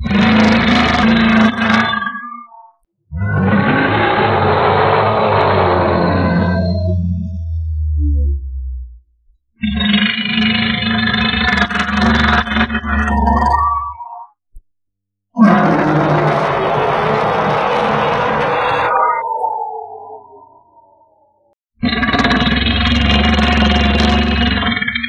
Are there animals making loud growling noises?
yes